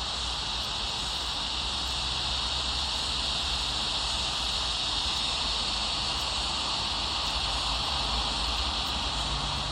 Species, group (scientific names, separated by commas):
Henicopsaltria eydouxii, Cicadidae